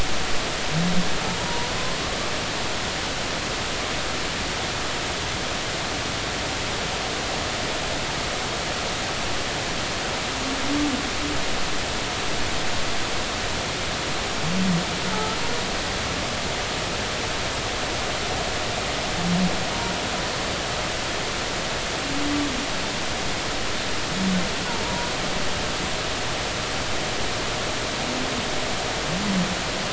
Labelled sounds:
1.4	1.7	humpback whale, 0.90 to 0.99 kHz
15.1	15.4	humpback whale, 1.2 to 1.4 kHz
24.8	25.1	humpback whale, 0.90 to 0.99 kHz

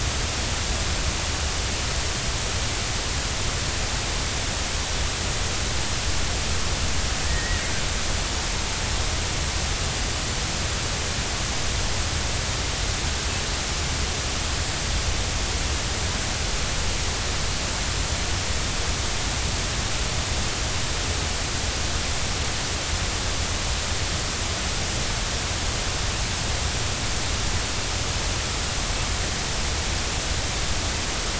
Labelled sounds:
7.2	7.6	killer whale, 1.7 to 2.0 kHz

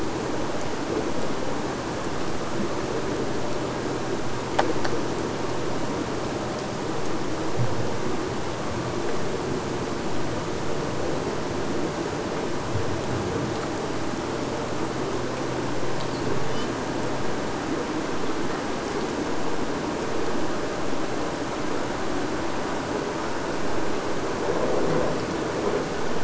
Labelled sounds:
16.4	16.8	killer whale, Bigg's (transient), AT1 transient, 2.7 to 6.2 kHz

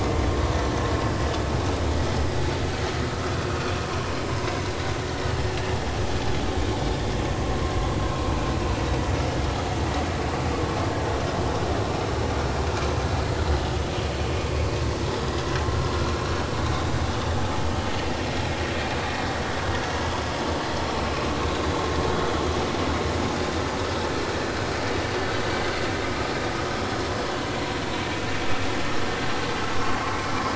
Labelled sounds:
3.1	3.4	vessel noise, 1.2 to 1.4 kHz
21.0	21.2	vessel noise, 2.4 to 2.7 kHz
29.7	30.0	vessel noise, 1.0 to 1.2 kHz

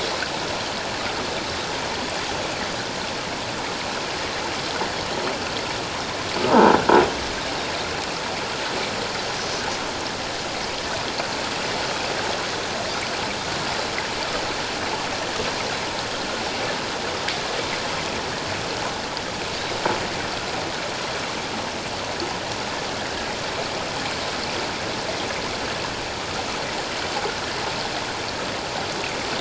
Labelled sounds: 6.5	6.7	croaking sound likely from a nearby submerged object, 0.84 to 1.0 kHz
9.4	9.6	Pacific white-sided dolphin, 5.8 to 6.2 kHz

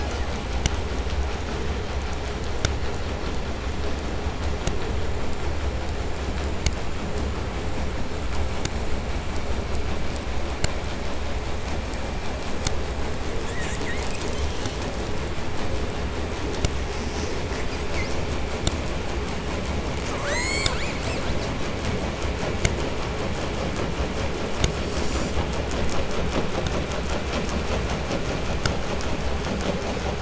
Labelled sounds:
13.5	14.8	killer whale, 1.2 to 8.0 kHz
16.9	18.3	killer whale, 1.2 to 8.0 kHz
20.0	21.6	killer whale, southern resident, 0.41 to 8.0 kHz

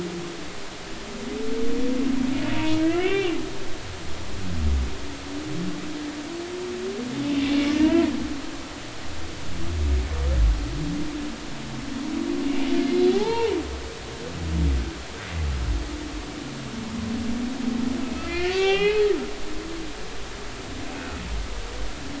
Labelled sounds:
2.8	3.4	humpback whale, 1.7 to 3.2 kHz
7.7	8.1	humpback whale, 0.90 to 2.1 kHz
13.1	13.5	humpback whale, 0.80 to 2.4 kHz
18.0	19.1	humpback whale, 0.80 to 4.3 kHz
20.9	21.2	humpback whale, 1.3 to 1.6 kHz

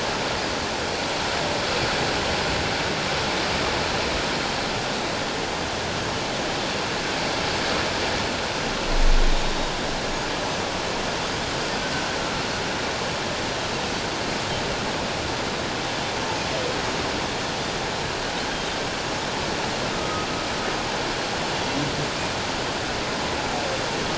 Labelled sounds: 19.9	20.3	humpback whale, 1.2 to 1.3 kHz

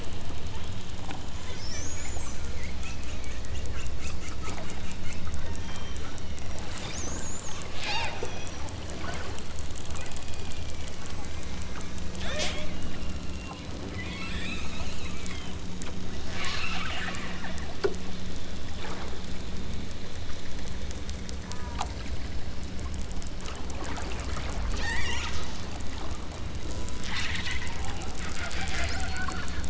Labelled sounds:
5.6	6.7	killer whale, southern Alaska resident, 2.7 to 6.2 kHz
7.8	8.2	killer whale, southern Alaska resident, 0.39 to 8.0 kHz
10.2	11.0	killer whale, southern Alaska resident, 1.9 to 6.1 kHz
12.6	13.8	killer whale, southern Alaska resident, 2.2 to 6.3 kHz
14.9	15.7	killer whale, southern Alaska resident, 1.5 to 4.5 kHz
16.2	17.3	killer whale, southern Alaska resident, 0.64 to 6.6 kHz
21.4	21.7	killer whale, southern Alaska resident, 0.73 to 2.1 kHz
24.7	25.5	killer whale, southern Alaska resident, 0.60 to 8.0 kHz
27.0	27.8	killer whale, southern Alaska resident, 0.73 to 6.2 kHz
28.1	29.6	killer whale, southern Alaska resident, 0.86 to 5.9 kHz

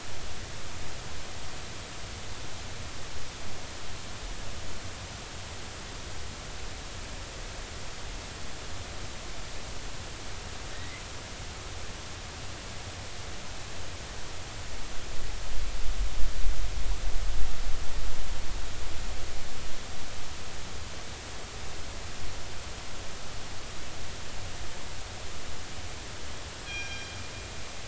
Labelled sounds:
10.7	11.0	killer whale, northern resident, 1.8 to 2.2 kHz
26.6	27.2	killer whale, northern resident, G clan, call N24ii, 1.6 to 5.8 kHz

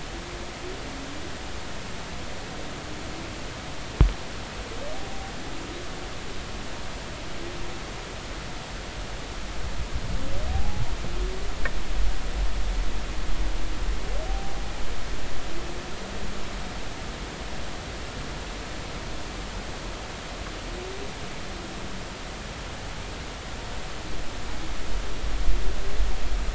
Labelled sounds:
5.0	5.3	humpback whale, 0.80 to 0.83 kHz
10.5	10.8	humpback whale, 0.80 to 0.90 kHz
14.3	14.5	humpback whale, 0.80 to 0.83 kHz

